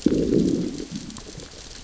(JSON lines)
{"label": "biophony, growl", "recorder": "SoundTrap 600 or HydroMoth"}